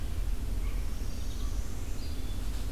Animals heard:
American Crow (Corvus brachyrhynchos), Red-eyed Vireo (Vireo olivaceus), Northern Parula (Setophaga americana)

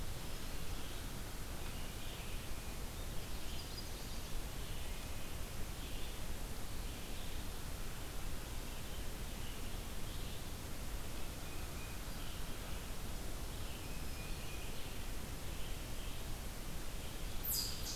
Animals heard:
Chestnut-sided Warbler (Setophaga pensylvanica), unknown mammal, Black-throated Green Warbler (Setophaga virens), Tufted Titmouse (Baeolophus bicolor), American Crow (Corvus brachyrhynchos), Red-eyed Vireo (Vireo olivaceus)

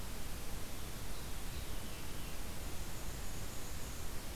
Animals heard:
Black-and-white Warbler (Mniotilta varia), Veery (Catharus fuscescens)

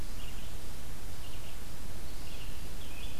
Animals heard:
Red-eyed Vireo (Vireo olivaceus), Blue-headed Vireo (Vireo solitarius)

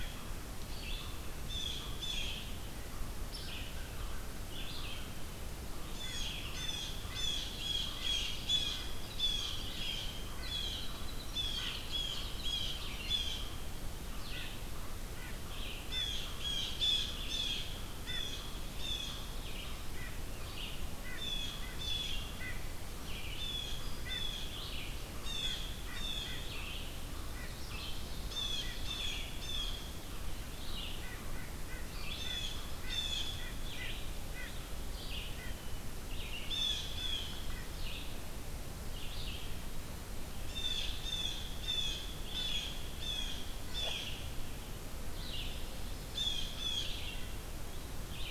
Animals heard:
Red-eyed Vireo (Vireo olivaceus), American Crow (Corvus brachyrhynchos), Blue Jay (Cyanocitta cristata)

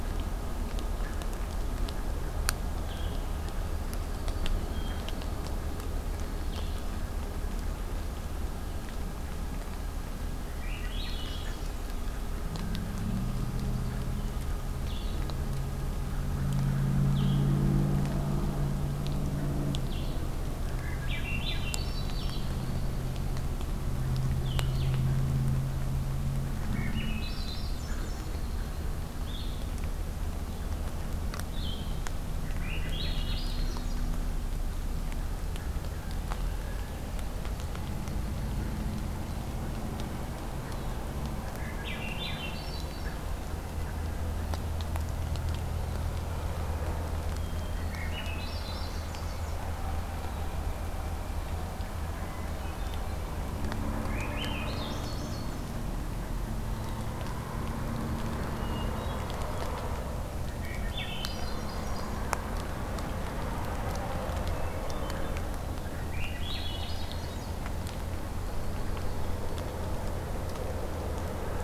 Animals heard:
Hermit Thrush (Catharus guttatus), Yellow-rumped Warbler (Setophaga coronata), Swainson's Thrush (Catharus ustulatus), Blue-headed Vireo (Vireo solitarius)

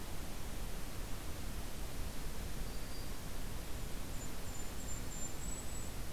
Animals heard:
Golden-crowned Kinglet (Regulus satrapa), Black-throated Green Warbler (Setophaga virens)

